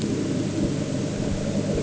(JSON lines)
{"label": "anthrophony, boat engine", "recorder": "HydroMoth"}